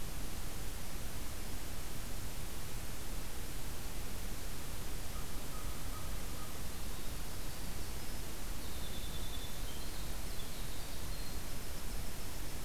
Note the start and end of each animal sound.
5.0s-6.6s: American Crow (Corvus brachyrhynchos)
6.8s-12.6s: Winter Wren (Troglodytes hiemalis)

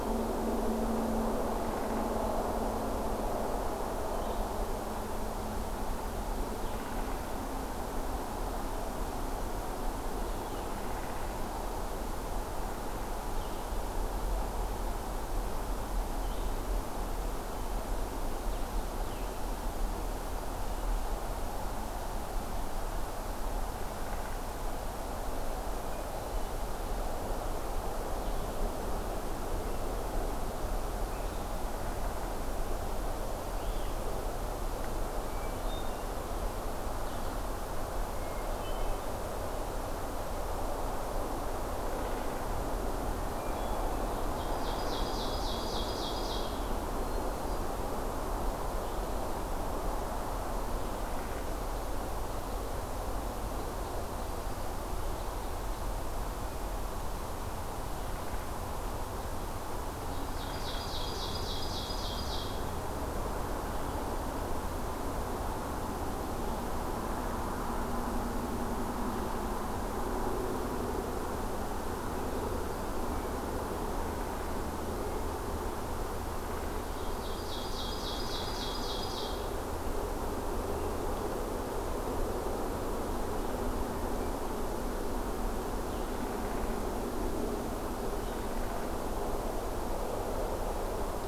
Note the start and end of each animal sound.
0.0s-13.9s: Blue-headed Vireo (Vireo solitarius)
16.0s-37.4s: Blue-headed Vireo (Vireo solitarius)
35.1s-36.2s: Hermit Thrush (Catharus guttatus)
38.1s-39.2s: Hermit Thrush (Catharus guttatus)
42.0s-42.6s: Downy Woodpecker (Dryobates pubescens)
43.2s-44.4s: Hermit Thrush (Catharus guttatus)
44.3s-46.6s: Ovenbird (Seiurus aurocapilla)
46.9s-47.9s: Hermit Thrush (Catharus guttatus)
51.0s-51.4s: Downy Woodpecker (Dryobates pubescens)
60.1s-62.8s: Ovenbird (Seiurus aurocapilla)
76.9s-79.5s: Ovenbird (Seiurus aurocapilla)

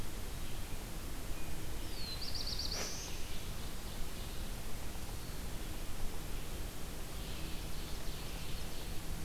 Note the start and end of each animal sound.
1.7s-3.3s: Black-throated Blue Warbler (Setophaga caerulescens)
2.6s-4.4s: Ovenbird (Seiurus aurocapilla)
6.7s-9.2s: Ovenbird (Seiurus aurocapilla)

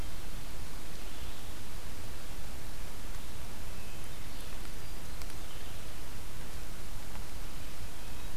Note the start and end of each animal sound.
0.0s-8.4s: Red-eyed Vireo (Vireo olivaceus)
3.7s-4.4s: Wood Thrush (Hylocichla mustelina)
7.6s-8.4s: Wood Thrush (Hylocichla mustelina)

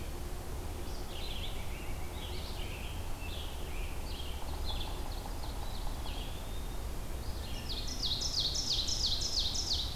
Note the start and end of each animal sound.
0.0s-5.2s: Red-eyed Vireo (Vireo olivaceus)
1.3s-2.7s: Pileated Woodpecker (Dryocopus pileatus)
4.3s-6.3s: Ovenbird (Seiurus aurocapilla)
5.6s-6.9s: Eastern Wood-Pewee (Contopus virens)
7.2s-9.9s: Ovenbird (Seiurus aurocapilla)

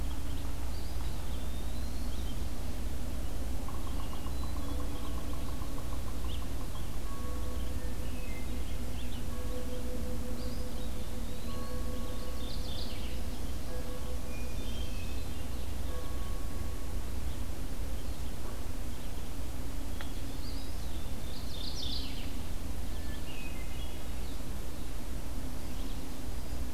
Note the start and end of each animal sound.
0.0s-26.7s: Red-eyed Vireo (Vireo olivaceus)
0.5s-2.0s: Eastern Wood-Pewee (Contopus virens)
3.5s-6.9s: Yellow-bellied Sapsucker (Sphyrapicus varius)
3.8s-4.9s: Hermit Thrush (Catharus guttatus)
7.9s-8.7s: Wood Thrush (Hylocichla mustelina)
10.1s-11.8s: Eastern Wood-Pewee (Contopus virens)
12.1s-13.3s: Mourning Warbler (Geothlypis philadelphia)
14.1s-15.6s: Hermit Thrush (Catharus guttatus)
19.8s-21.1s: Hermit Thrush (Catharus guttatus)
20.3s-21.5s: Eastern Wood-Pewee (Contopus virens)
21.2s-22.3s: Mourning Warbler (Geothlypis philadelphia)
22.9s-24.3s: Hermit Thrush (Catharus guttatus)

